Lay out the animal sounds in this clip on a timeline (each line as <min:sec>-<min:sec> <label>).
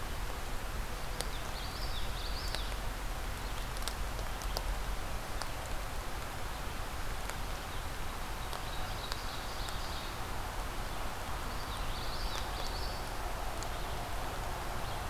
0:01.3-0:02.7 Common Yellowthroat (Geothlypis trichas)
0:08.7-0:10.1 Ovenbird (Seiurus aurocapilla)
0:11.5-0:13.0 Common Yellowthroat (Geothlypis trichas)